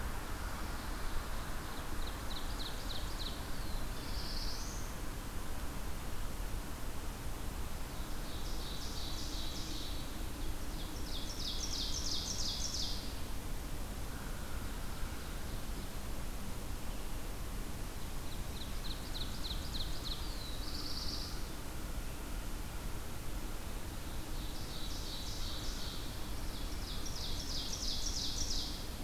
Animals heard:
Ovenbird (Seiurus aurocapilla), Black-throated Blue Warbler (Setophaga caerulescens)

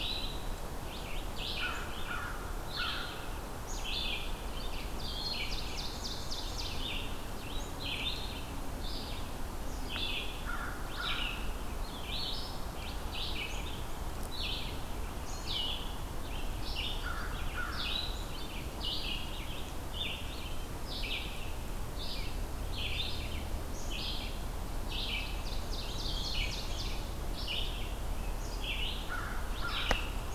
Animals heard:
Black-capped Chickadee (Poecile atricapillus), American Crow (Corvus brachyrhynchos), Ovenbird (Seiurus aurocapilla), Red-eyed Vireo (Vireo olivaceus)

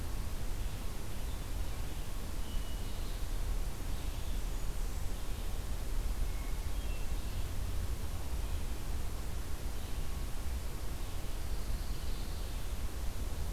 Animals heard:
Red-eyed Vireo (Vireo olivaceus), Pine Warbler (Setophaga pinus), Hermit Thrush (Catharus guttatus), Blackburnian Warbler (Setophaga fusca)

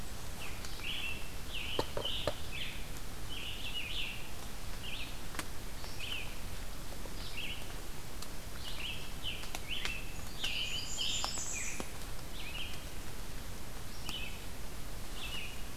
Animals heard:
Scarlet Tanager (Piranga olivacea), Blackburnian Warbler (Setophaga fusca), Red-eyed Vireo (Vireo olivaceus)

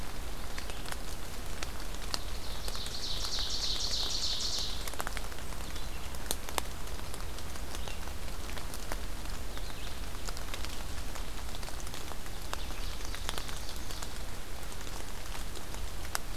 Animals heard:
Ovenbird (Seiurus aurocapilla), Red-eyed Vireo (Vireo olivaceus)

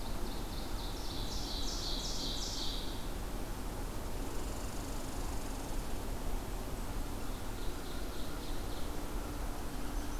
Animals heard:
Ovenbird (Seiurus aurocapilla), American Crow (Corvus brachyrhynchos), Red Squirrel (Tamiasciurus hudsonicus)

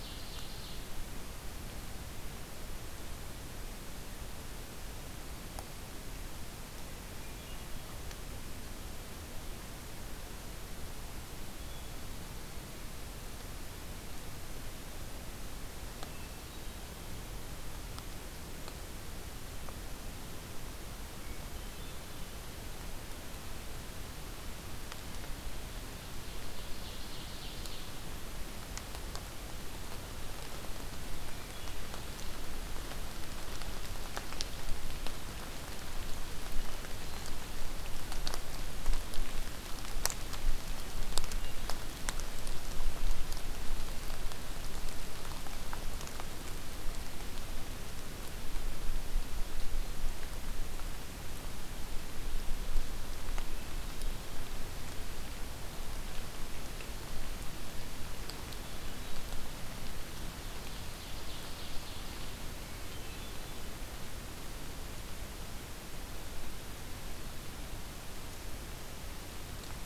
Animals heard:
Ovenbird (Seiurus aurocapilla), Hermit Thrush (Catharus guttatus)

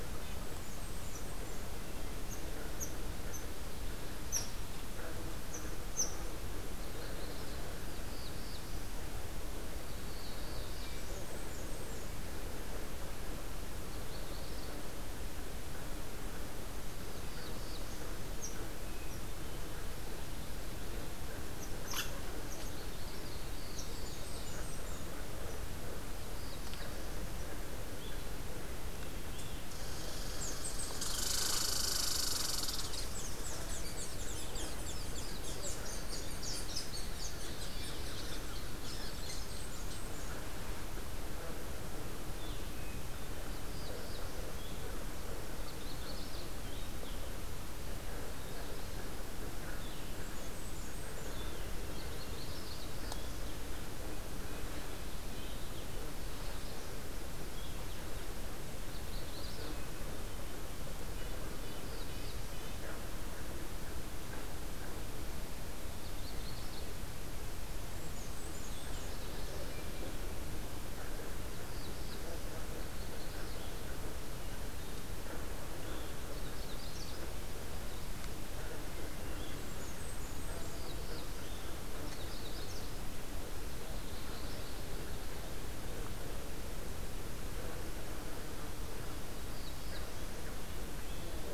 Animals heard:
Black-throated Blue Warbler (Setophaga caerulescens), Magnolia Warbler (Setophaga magnolia), Blackburnian Warbler (Setophaga fusca), Red Squirrel (Tamiasciurus hudsonicus), Blue-headed Vireo (Vireo solitarius), Red-breasted Nuthatch (Sitta canadensis)

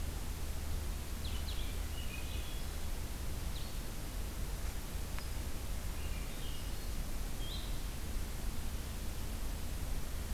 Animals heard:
Swainson's Thrush (Catharus ustulatus), Blue-headed Vireo (Vireo solitarius)

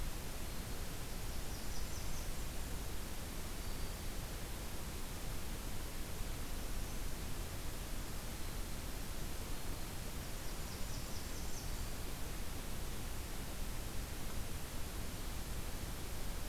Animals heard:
Blackburnian Warbler (Setophaga fusca), Black-throated Green Warbler (Setophaga virens)

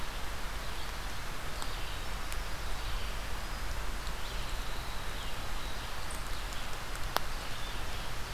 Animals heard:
Red-eyed Vireo (Vireo olivaceus)

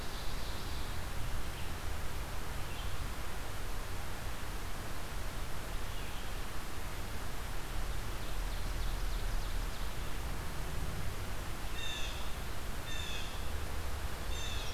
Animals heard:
Ovenbird (Seiurus aurocapilla), Red-eyed Vireo (Vireo olivaceus), Blue Jay (Cyanocitta cristata)

